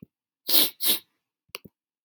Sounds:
Sniff